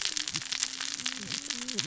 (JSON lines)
{"label": "biophony, cascading saw", "recorder": "SoundTrap 600 or HydroMoth"}